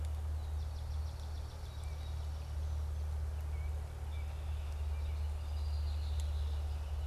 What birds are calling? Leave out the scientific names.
Swamp Sparrow, Song Sparrow, Baltimore Oriole, Northern Flicker, Red-winged Blackbird